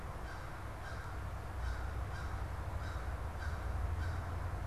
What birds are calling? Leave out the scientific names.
American Crow